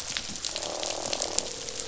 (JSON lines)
{"label": "biophony, croak", "recorder": "SoundTrap 500"}